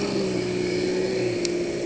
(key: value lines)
label: anthrophony, boat engine
recorder: HydroMoth